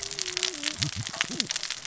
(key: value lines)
label: biophony, cascading saw
recorder: SoundTrap 600 or HydroMoth